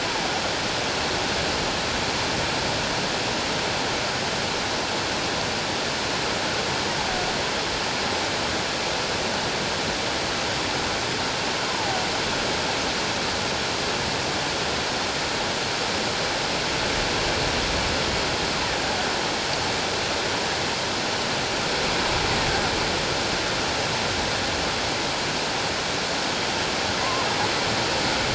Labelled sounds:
11.7	12.0	killer whale, offshore, 0.78 to 1.1 kHz
27.0	27.3	killer whale, offshore, 0.97 to 1.1 kHz

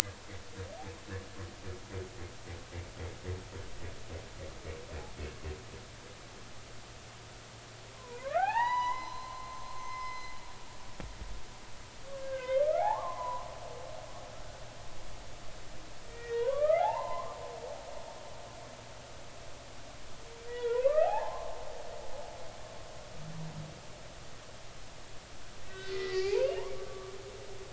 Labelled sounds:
8.0	10.3	humpback whale, 0.80 to 6.0 kHz
12.1	13.5	humpback whale, 0.80 to 2.2 kHz
16.1	17.4	humpback whale, 0.80 to 2.2 kHz
20.5	21.6	humpback whale, 0.80 to 3.5 kHz
25.6	27.1	humpback whale, 0.80 to 4.4 kHz

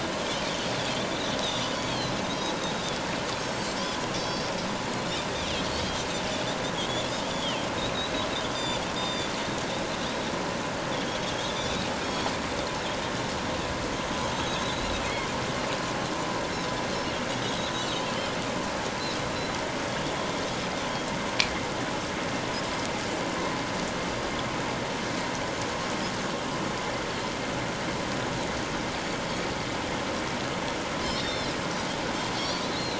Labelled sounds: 1.7	2.2	Pacific white-sided dolphin, 3.9 to 4.6 kHz
3.4	4.5	Pacific white-sided dolphin, 3.9 to 6.1 kHz
5.6	5.8	Pacific white-sided dolphin, 4.2 to 4.5 kHz
7.3	7.7	Pacific white-sided dolphin, 2.5 to 3.5 kHz
8.5	9.3	Pacific white-sided dolphin, 3.4 to 7.3 kHz
11.2	11.5	Pacific white-sided dolphin, 3.2 to 3.5 kHz
12.0	12.3	Pacific white-sided dolphin, 3.2 to 5.8 kHz
14.3	15.0	Pacific white-sided dolphin, 3.7 to 6.5 kHz
31.0	31.6	Pacific white-sided dolphin, 3.4 to 5.6 kHz
32.4	32.9	Pacific white-sided dolphin, 3.8 to 5.0 kHz

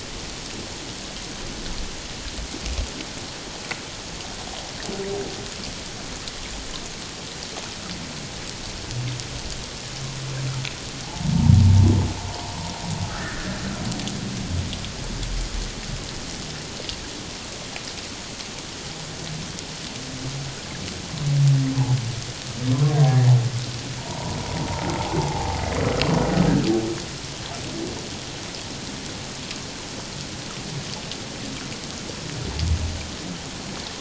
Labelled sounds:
11.0	11.3	humpback whale, 0.78 to 0.94 kHz
13.0	13.6	humpback whale, 1.2 to 1.9 kHz
23.0	23.3	humpback whale, 0.78 to 2.2 kHz
24.0	24.4	humpback whale, 0.84 to 1.0 kHz
25.2	25.6	humpback whale, 0.78 to 0.94 kHz

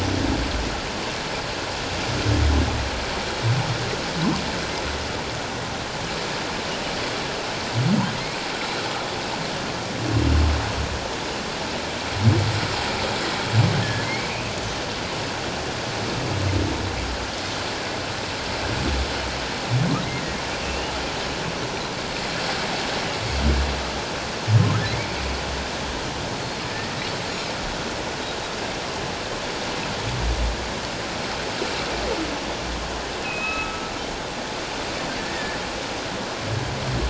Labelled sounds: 13.8	14.3	humpback whale, 1.6 to 2.3 kHz
20.6	20.9	humpback whale, 2.5 to 3.0 kHz
33.2	33.9	humpback whale, 1.2 to 2.7 kHz
35.2	35.6	humpback whale, 1.7 to 1.9 kHz

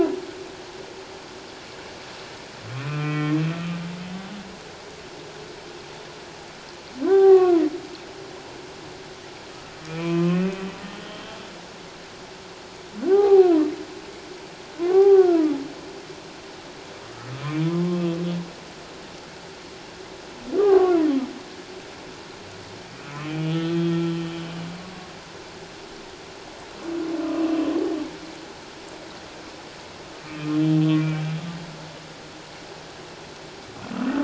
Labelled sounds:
2.7	3.4	humpback whale, 0.97 to 3.2 kHz
7.0	7.7	humpback whale, 0.78 to 1.6 kHz
9.8	10.7	humpback whale, 0.97 to 2.7 kHz
13.1	13.5	humpback whale, 0.78 to 1.3 kHz
14.8	15.6	humpback whale, 0.78 to 1.6 kHz
17.6	18.0	humpback whale, 0.97 to 1.1 kHz
20.6	21.0	humpback whale, 0.78 to 1.3 kHz
23.0	24.6	humpback whale, 1.2 to 3.5 kHz
30.2	31.2	humpback whale, 1.2 to 2.5 kHz

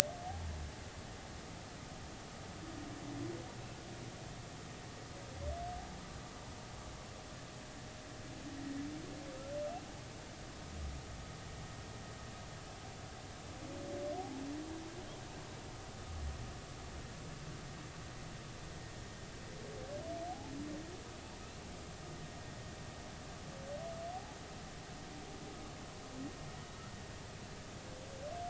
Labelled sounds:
20.3	20.5	humpback whale, 0.80 to 0.93 kHz
24.1	24.4	humpback whale, 0.80 to 0.96 kHz

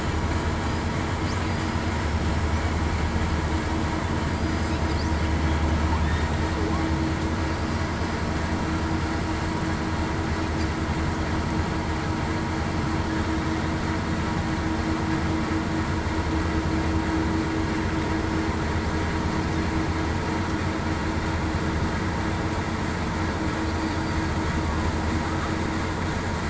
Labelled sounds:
4.3	4.8	killer whale, southern resident, 4.7 to 5.0 kHz
7.8	8.2	killer whale, southern resident, 4.9 to 5.0 kHz

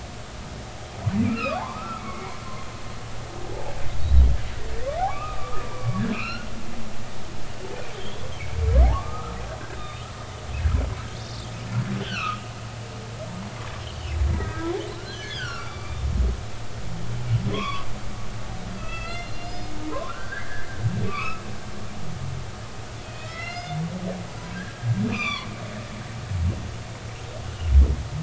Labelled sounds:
1.3	2.4	humpback whale, 0.80 to 2.8 kHz
3.5	3.7	humpback whale, 0.80 to 0.93 kHz
5.0	6.5	humpback whale, 0.80 to 4.3 kHz
8.9	10.1	humpback whale, 1.0 to 3.7 kHz
12.0	12.4	humpback whale, 1.1 to 3.2 kHz
14.3	16.1	humpback whale, 1.1 to 5.2 kHz
17.5	17.9	humpback whale, 0.96 to 3.6 kHz
18.8	20.7	humpback whale, 0.96 to 5.1 kHz
21.0	21.4	humpback whale, 1.0 to 2.7 kHz
23.0	23.8	humpback whale, 1.2 to 5.6 kHz
24.5	25.5	humpback whale, 0.99 to 6.1 kHz

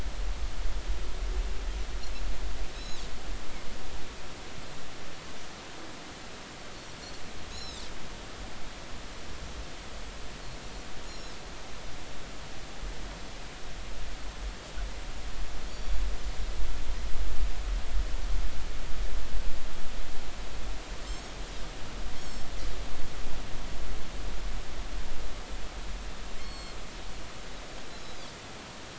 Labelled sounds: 2.7	3.0	Pacific white-sided dolphin, 3.8 to 5.4 kHz
7.5	7.8	Pacific white-sided dolphin, 3.5 to 5.5 kHz
11.0	11.3	Pacific white-sided dolphin, 5.2 to 7.0 kHz
15.7	16.0	Pacific white-sided dolphin, 4.4 to 4.6 kHz
21.1	22.5	Pacific white-sided dolphin, 5.2 to 6.7 kHz
26.4	26.8	Pacific white-sided dolphin, 4.1 to 7.7 kHz
27.9	28.2	Pacific white-sided dolphin, 3.8 to 4.1 kHz

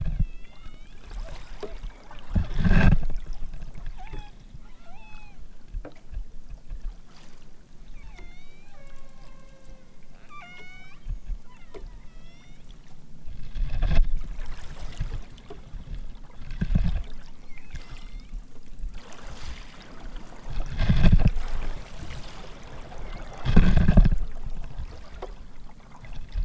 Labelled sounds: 0.1	1.0	killer whale, southern Alaska resident, 0.46 to 6.3 kHz
3.1	3.4	killer whale, southern Alaska resident, 1.8 to 6.9 kHz
3.9	4.3	killer whale, southern Alaska resident, 0.55 to 8.0 kHz
4.6	5.3	killer whale, southern Alaska resident, 0.41 to 8.0 kHz
8.0	12.7	killer whale, southern Alaska resident, 0.28 to 8.0 kHz
17.5	18.5	killer whale, southern Alaska resident, 1.2 to 8.0 kHz
23.0	23.7	killer whale, southern Alaska resident, 4.1 to 6.0 kHz

